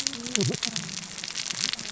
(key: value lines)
label: biophony, cascading saw
recorder: SoundTrap 600 or HydroMoth